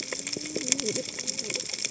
{"label": "biophony, cascading saw", "recorder": "HydroMoth"}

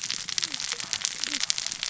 {"label": "biophony, cascading saw", "recorder": "SoundTrap 600 or HydroMoth"}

